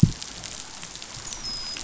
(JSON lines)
{"label": "biophony, dolphin", "recorder": "SoundTrap 500"}